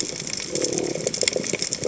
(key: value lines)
label: biophony
recorder: HydroMoth